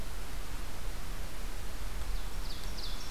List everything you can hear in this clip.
Ovenbird